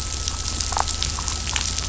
{"label": "biophony", "recorder": "SoundTrap 500"}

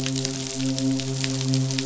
{"label": "biophony, midshipman", "recorder": "SoundTrap 500"}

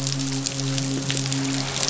{"label": "biophony, midshipman", "recorder": "SoundTrap 500"}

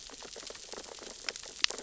{"label": "biophony, sea urchins (Echinidae)", "recorder": "SoundTrap 600 or HydroMoth"}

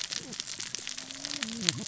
{"label": "biophony, cascading saw", "recorder": "SoundTrap 600 or HydroMoth"}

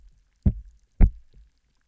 {"label": "biophony, double pulse", "recorder": "SoundTrap 300"}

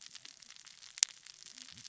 {"label": "biophony, cascading saw", "recorder": "SoundTrap 600 or HydroMoth"}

